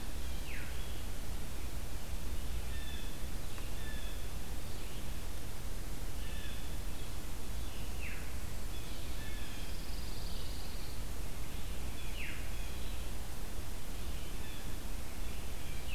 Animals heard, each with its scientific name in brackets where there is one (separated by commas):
Pine Warbler (Setophaga pinus), Blue Jay (Cyanocitta cristata), Red-eyed Vireo (Vireo olivaceus), Veery (Catharus fuscescens)